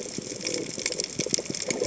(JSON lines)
{"label": "biophony", "recorder": "HydroMoth"}